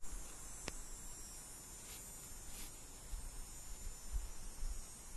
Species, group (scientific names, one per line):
Neotibicen canicularis
Cicadidae